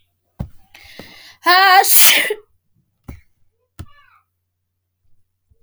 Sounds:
Sneeze